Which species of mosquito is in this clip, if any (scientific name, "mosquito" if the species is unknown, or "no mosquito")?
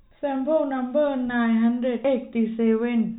no mosquito